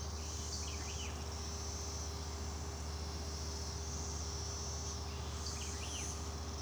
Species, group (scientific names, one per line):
Magicicada tredecassini
Cicadidae